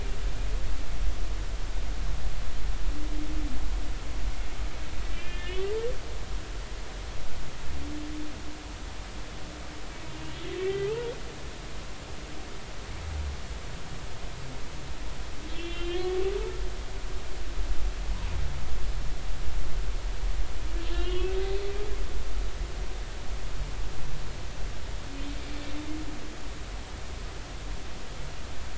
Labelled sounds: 5.1	5.7	humpback whale, 1.6 to 3.2 kHz
10.6	11.1	humpback whale, 1.2 to 2.0 kHz
15.5	16.2	humpback whale, 1.7 to 3.5 kHz
20.8	21.3	humpback whale, 1.3 to 3.4 kHz

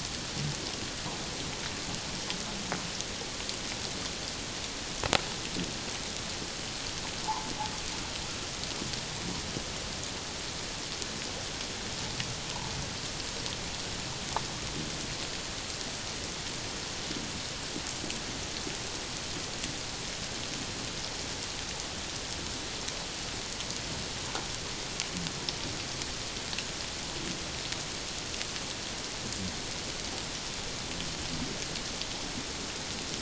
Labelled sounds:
7.3	7.5	humpback whale, 0.78 to 1.1 kHz

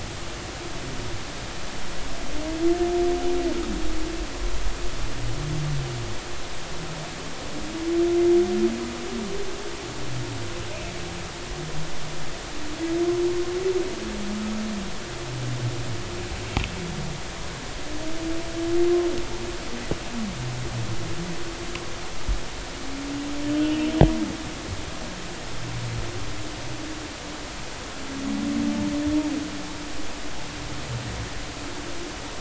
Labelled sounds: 23.6	24.0	humpback whale, 2.6 to 3.1 kHz

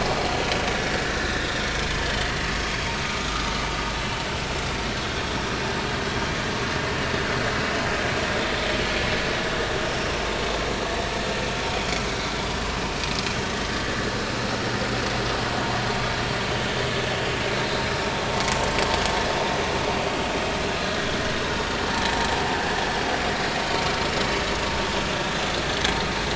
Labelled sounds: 1.0	2.3	vessel noise, 1.7 to 4.0 kHz
2.7	3.5	vessel noise, 1.1 to 3.3 kHz
17.5	17.8	vessel noise, 3.7 to 4.1 kHz
25.9	26.1	vessel noise, 4.1 to 4.4 kHz

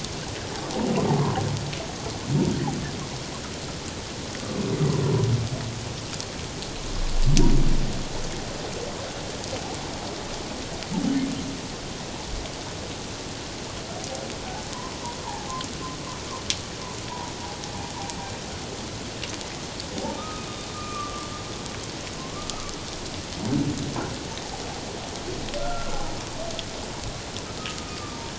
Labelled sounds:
15.2	15.5	humpback whale, 0.78 to 1.1 kHz
20.1	21.3	humpback whale, 1.1 to 1.3 kHz
22.2	22.5	humpback whale, 1.0 to 1.2 kHz
25.6	26.0	humpback whale, 1.3 to 1.5 kHz
27.6	28.2	humpback whale, 1.1 to 1.3 kHz

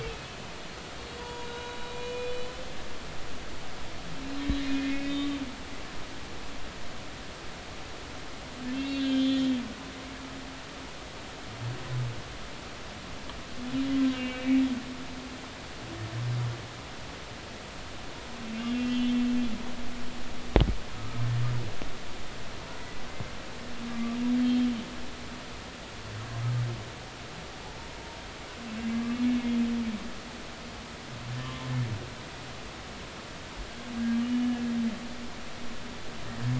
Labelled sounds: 0.0	0.4	humpback whale, 2.5 to 2.8 kHz
1.2	2.3	humpback whale, 0.83 to 3.9 kHz
4.6	5.4	humpback whale, 2.0 to 3.7 kHz
8.7	9.5	humpback whale, 2.6 to 4.1 kHz
14.1	14.6	humpback whale, 2.2 to 2.9 kHz
18.7	19.1	humpback whale, 2.7 to 2.8 kHz
20.9	21.2	humpback whale, 1.2 to 1.3 kHz
24.4	24.7	humpback whale, 3.1 to 3.3 kHz
31.4	31.7	humpback whale, 0.99 to 1.2 kHz
34.0	34.2	humpback whale, 1.6 to 1.8 kHz

